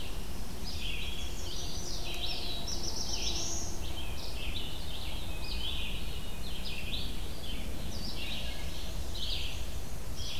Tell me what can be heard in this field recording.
Red-eyed Vireo, Chestnut-sided Warbler, Black-throated Blue Warbler, Black-and-white Warbler